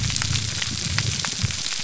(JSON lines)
{"label": "biophony", "recorder": "SoundTrap 300"}